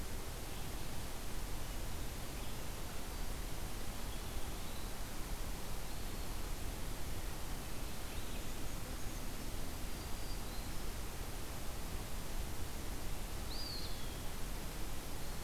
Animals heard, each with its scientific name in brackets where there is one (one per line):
Eastern Wood-Pewee (Contopus virens)
Black-throated Green Warbler (Setophaga virens)